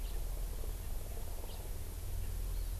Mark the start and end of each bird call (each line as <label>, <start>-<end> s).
House Finch (Haemorhous mexicanus), 0.0-0.1 s
House Finch (Haemorhous mexicanus), 1.5-1.6 s
Hawaii Amakihi (Chlorodrepanis virens), 2.5-2.7 s